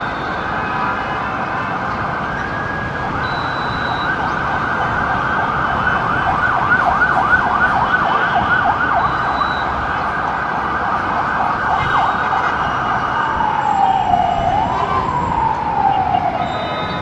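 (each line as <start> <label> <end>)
0.0 Steady city traffic sounds. 17.0
2.8 An ambulance siren howls with increasing and then decreasing volume. 17.0
3.6 A whistle blows loudly and steadily. 4.5
9.5 A whistle blows loudly and steadily. 10.2
16.4 A whistle blows loudly and steadily. 17.0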